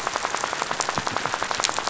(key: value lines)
label: biophony, rattle
recorder: SoundTrap 500